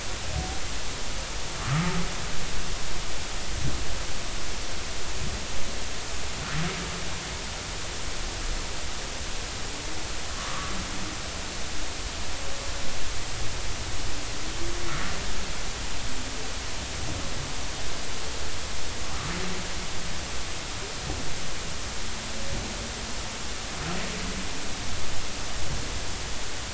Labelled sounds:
1.6	1.9	humpback whale, 1.1 to 1.4 kHz
10.3	10.7	humpback whale, 0.99 to 1.3 kHz

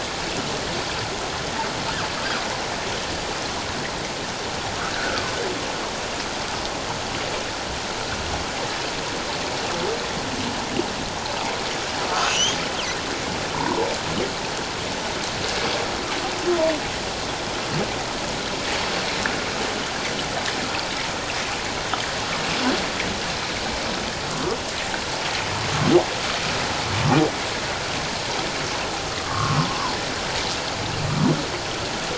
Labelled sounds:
4.9	5.3	humpback whale, 1.2 to 1.7 kHz
12.1	12.6	humpback whale, 1.2 to 3.4 kHz
13.5	13.9	humpback whale, 0.81 to 1.1 kHz
29.2	29.6	humpback whale, 1.0 to 1.5 kHz

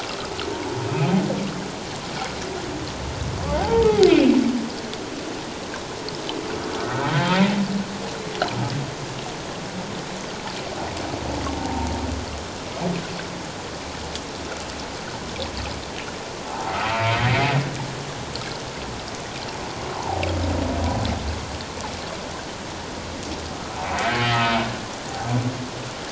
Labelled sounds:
3.6	4.4	humpback whale, 0.78 to 2.9 kHz
6.8	7.1	humpback whale, 1.2 to 1.6 kHz
16.5	17.2	humpback whale, 0.78 to 2.4 kHz
19.9	20.2	humpback whale, 0.78 to 1.1 kHz
23.5	23.8	humpback whale, 1.2 to 1.4 kHz
24.1	24.6	humpback whale, 1.2 to 2.9 kHz

